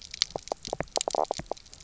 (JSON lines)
{"label": "biophony, knock croak", "recorder": "SoundTrap 300"}